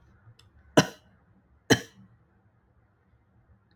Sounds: Cough